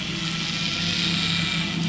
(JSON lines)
{"label": "anthrophony, boat engine", "recorder": "SoundTrap 500"}